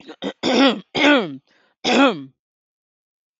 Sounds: Throat clearing